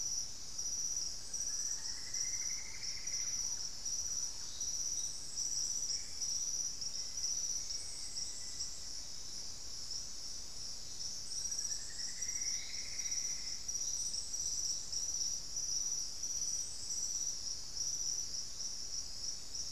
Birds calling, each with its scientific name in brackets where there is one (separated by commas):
Thrush-like Wren (Campylorhynchus turdinus), Plumbeous Antbird (Myrmelastes hyperythrus), Black-faced Antthrush (Formicarius analis)